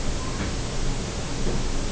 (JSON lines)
{"label": "biophony", "recorder": "SoundTrap 300"}